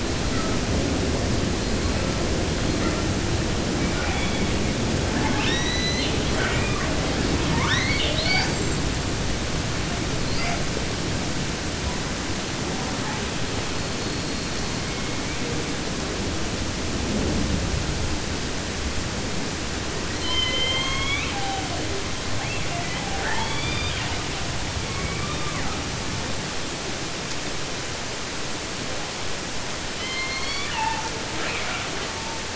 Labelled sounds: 0.0	0.8	killer whale, southern resident, J pod, call S42, 0.81 to 4.4 kHz
1.5	3.2	killer whale, southern resident, J pod, call S42, 0.68 to 4.6 kHz
3.7	4.7	killer whale, southern resident, 0.44 to 4.2 kHz
5.1	7.0	killer whale, southern resident, 0.50 to 8.0 kHz
7.4	9.1	killer whale, southern resident, 0.50 to 8.0 kHz
10.2	10.7	killer whale, 0.38 to 7.5 kHz
11.8	12.3	killer whale, 0.68 to 2.3 kHz
12.6	15.6	killer whale, 0.24 to 4.6 kHz
20.0	21.9	killer whale, southern resident, J pod, call S01, 0.50 to 8.0 kHz
22.3	24.3	killer whale, southern resident, 0.50 to 7.8 kHz
24.7	25.8	killer whale, southern resident, 0.36 to 5.9 kHz
29.9	31.1	killer whale, southern resident, J pod, call S01, 0.50 to 8.0 kHz
31.3	32.5	killer whale, southern resident, 0.50 to 4.9 kHz

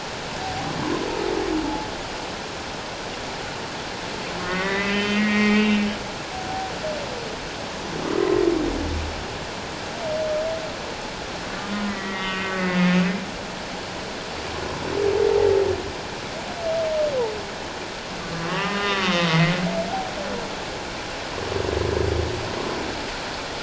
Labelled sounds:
0.4	0.7	humpback whale, 0.78 to 0.91 kHz
4.4	6.7	humpback whale, 0.78 to 3.2 kHz
11.9	13.0	humpback whale, 1.1 to 3.1 kHz
18.2	19.5	humpback whale, 0.91 to 3.9 kHz

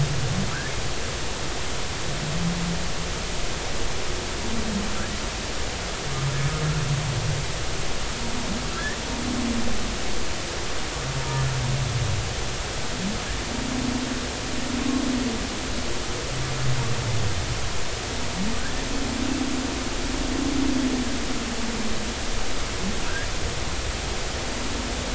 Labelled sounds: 8.7	9.0	humpback whale, 1.5 to 2.0 kHz
18.6	18.8	humpback whale, 1.4 to 1.9 kHz

